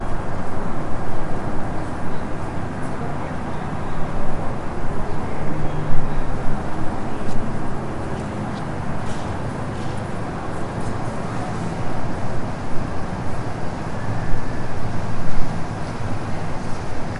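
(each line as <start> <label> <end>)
0.0 A steady, muffled rumble is heard as the vehicle drives. 17.2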